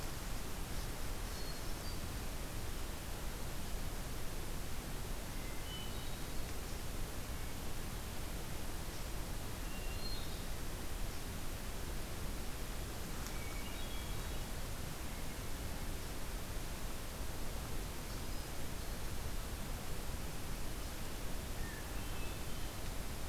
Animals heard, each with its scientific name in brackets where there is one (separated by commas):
Hermit Thrush (Catharus guttatus)